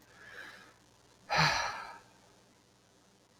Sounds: Sigh